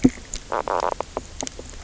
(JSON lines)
{"label": "biophony, knock croak", "recorder": "SoundTrap 300"}